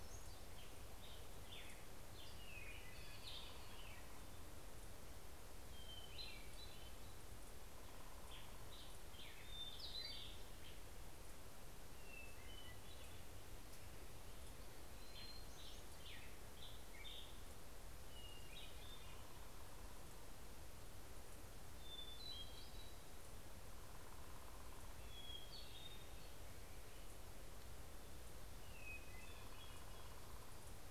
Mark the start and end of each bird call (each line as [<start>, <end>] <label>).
[0.00, 0.63] Hermit Thrush (Catharus guttatus)
[0.03, 2.83] American Robin (Turdus migratorius)
[1.83, 4.23] Hermit Thrush (Catharus guttatus)
[5.83, 7.13] Hermit Thrush (Catharus guttatus)
[7.83, 11.23] American Robin (Turdus migratorius)
[8.93, 11.03] Hermit Thrush (Catharus guttatus)
[11.63, 13.23] Hermit Thrush (Catharus guttatus)
[14.33, 17.73] American Robin (Turdus migratorius)
[17.53, 19.93] Hermit Thrush (Catharus guttatus)
[21.33, 30.83] Hermit Thrush (Catharus guttatus)